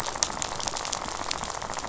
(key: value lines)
label: biophony, rattle
recorder: SoundTrap 500